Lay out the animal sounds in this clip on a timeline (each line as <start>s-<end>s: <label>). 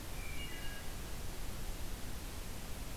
0.2s-1.0s: Wood Thrush (Hylocichla mustelina)